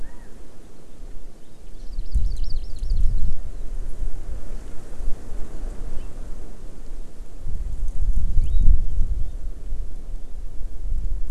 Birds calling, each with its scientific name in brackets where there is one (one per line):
Hawaii Amakihi (Chlorodrepanis virens)
Chinese Hwamei (Garrulax canorus)